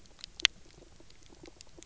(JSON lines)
{"label": "biophony", "recorder": "SoundTrap 300"}